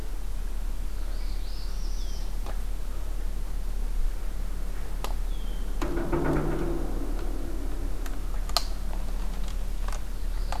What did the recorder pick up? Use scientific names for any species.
Setophaga americana, Agelaius phoeniceus